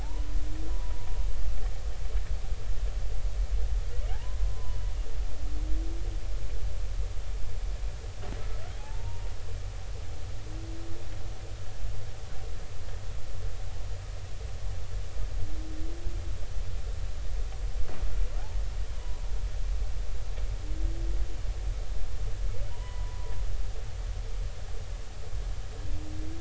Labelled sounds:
0.0	1.1	humpback whale, 0.80 to 1.1 kHz
4.1	4.8	humpback whale, 0.80 to 1.1 kHz
8.7	9.3	humpback whale, 0.80 to 0.99 kHz
22.7	23.3	humpback whale, 0.90 to 2.0 kHz

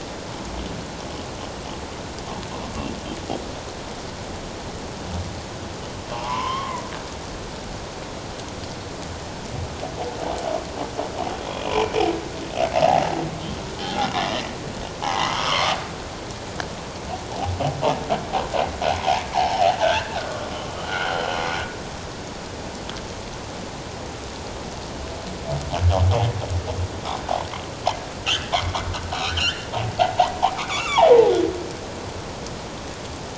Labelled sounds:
6.1	6.8	humpback whale, 0.78 to 3.3 kHz
11.4	11.8	humpback whale, 2.3 to 3.4 kHz
13.9	15.8	humpback whale, 0.78 to 2.1 kHz
19.3	20.5	humpback whale, 0.78 to 1.8 kHz
20.9	21.3	humpback whale, 1.3 to 1.6 kHz
28.5	29.7	humpback whale, 1.3 to 3.2 kHz
30.5	31.3	humpback whale, 0.78 to 2.9 kHz

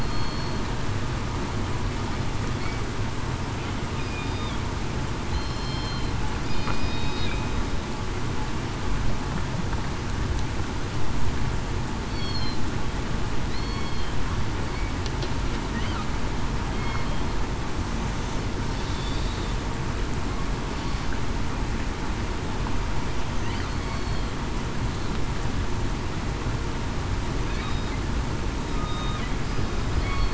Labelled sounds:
0.0	0.5	killer whale, southern resident, 4.3 to 4.4 kHz
4.2	4.5	killer whale, southern resident, 3.5 to 3.7 kHz
5.3	6.1	killer whale, southern resident, 3.0 to 5.3 kHz
6.4	7.0	killer whale, southern resident, 4.9 to 5.0 kHz
12.1	12.6	killer whale, southern resident, 4.1 to 4.6 kHz
13.5	14.0	killer whale, southern resident, 2.2 to 4.5 kHz
23.8	24.2	killer whale, southern resident, 4.3 to 4.5 kHz
28.7	29.1	killer whale, southern resident, 1.2 to 1.3 kHz

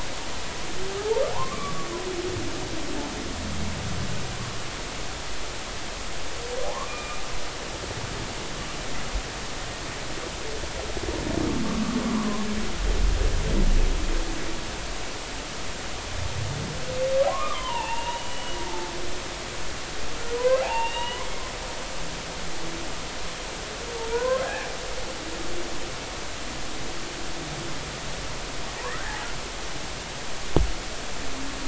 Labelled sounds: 1.0	1.9	humpback whale, 0.83 to 1.3 kHz
6.6	7.2	humpback whale, 0.80 to 2.5 kHz
11.6	12.0	humpback whale, 1.1 to 1.3 kHz
17.3	18.9	humpback whale, 0.83 to 3.0 kHz
20.3	21.4	humpback whale, 0.80 to 3.9 kHz
24.1	24.7	humpback whale, 0.90 to 1.8 kHz
28.9	29.2	humpback whale, 1.2 to 1.9 kHz

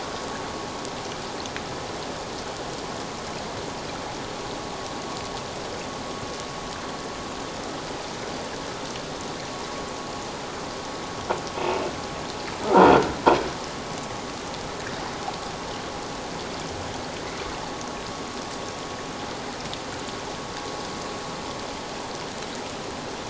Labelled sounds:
11.5	12.9	croaking sound likely from a nearby submerged object, 0.84 to 2.7 kHz

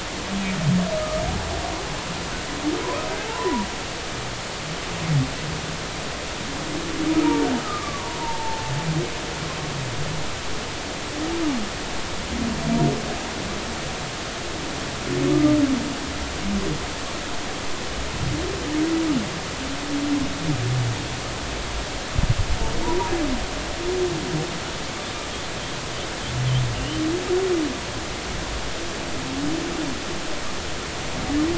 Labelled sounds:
2.0	3.7	humpback whale, 0.83 to 1.3 kHz
7.6	8.7	humpback whale, 0.83 to 1.3 kHz
22.8	23.1	humpback whale, 0.83 to 1.0 kHz
26.7	27.0	humpback whale, 2.7 to 3.1 kHz

